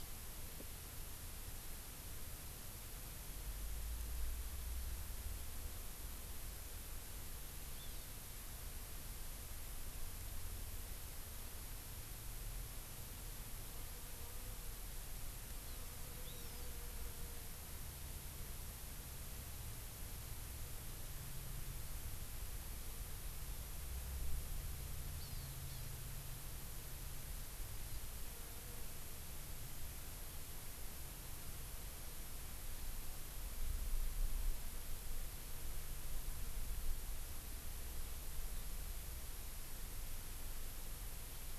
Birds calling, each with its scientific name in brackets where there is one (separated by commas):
Hawaii Amakihi (Chlorodrepanis virens)